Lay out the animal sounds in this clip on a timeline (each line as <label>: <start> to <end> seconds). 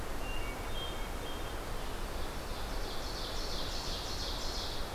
Hermit Thrush (Catharus guttatus): 0.0 to 1.7 seconds
Ovenbird (Seiurus aurocapilla): 1.9 to 4.9 seconds